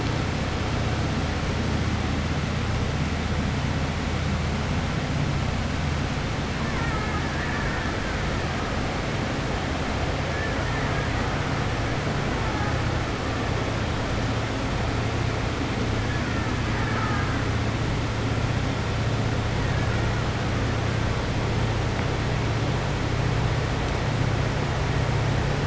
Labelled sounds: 16.6	17.4	killer whale, Bigg's (transient), 0.79 to 2.3 kHz

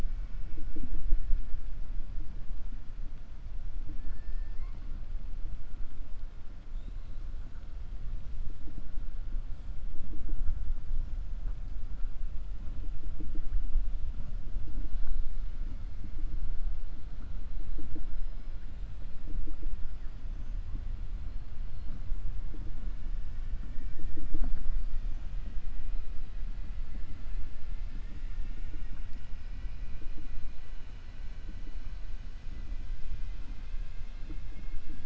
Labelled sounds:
26.8	29.1	killer whale, 0.89 to 2.8 kHz

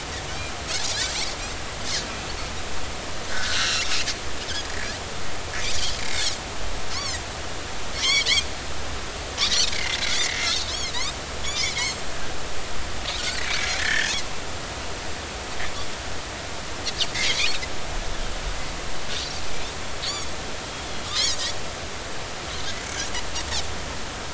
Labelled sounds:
1.0	1.3	Pacific white-sided dolphin, 7.5 to 7.8 kHz
3.3	3.9	Pacific white-sided dolphin, 1.3 to 4.3 kHz
6.9	8.3	Pacific white-sided dolphin, 1.8 to 6.9 kHz
9.7	11.1	Pacific white-sided dolphin, 1.7 to 5.7 kHz
11.4	12.0	Pacific white-sided dolphin, 2.0 to 6.6 kHz
13.4	14.5	Pacific white-sided dolphin, 1.5 to 3.4 kHz
16.8	17.1	Pacific white-sided dolphin, 4.2 to 4.6 kHz
20.0	20.3	Pacific white-sided dolphin, 4.0 to 7.1 kHz
22.8	23.1	Pacific white-sided dolphin, 5.6 to 6.2 kHz

